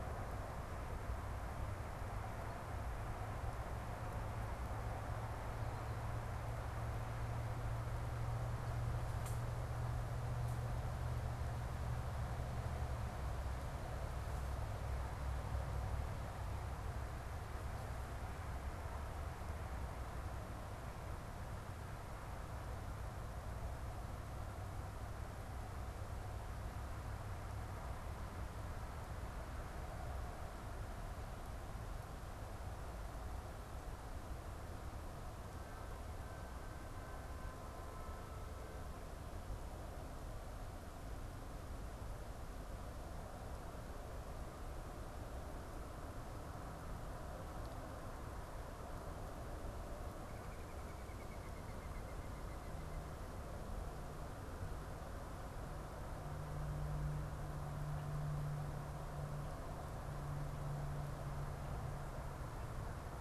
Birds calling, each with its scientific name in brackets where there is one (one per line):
Mourning Dove (Zenaida macroura)